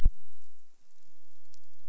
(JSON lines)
{"label": "biophony", "recorder": "SoundTrap 300"}